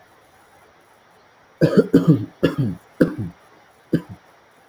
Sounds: Cough